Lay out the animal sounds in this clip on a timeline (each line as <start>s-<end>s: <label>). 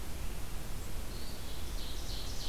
0.8s-2.5s: Ovenbird (Seiurus aurocapilla)